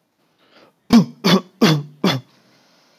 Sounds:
Cough